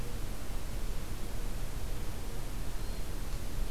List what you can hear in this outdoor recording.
Hermit Thrush